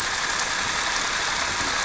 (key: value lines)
label: anthrophony, boat engine
recorder: SoundTrap 300